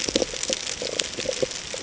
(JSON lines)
{"label": "ambient", "recorder": "HydroMoth"}